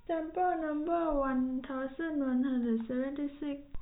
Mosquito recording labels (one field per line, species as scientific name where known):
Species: no mosquito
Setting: cup